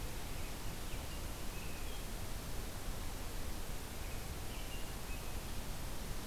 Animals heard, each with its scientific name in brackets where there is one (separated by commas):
American Robin (Turdus migratorius)